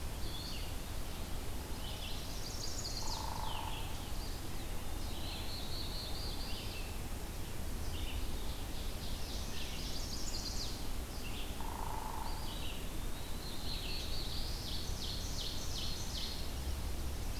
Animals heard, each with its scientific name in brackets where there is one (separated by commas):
Ovenbird (Seiurus aurocapilla), Black-throated Blue Warbler (Setophaga caerulescens), Chestnut-sided Warbler (Setophaga pensylvanica), Red-eyed Vireo (Vireo olivaceus), Hairy Woodpecker (Dryobates villosus), Eastern Wood-Pewee (Contopus virens)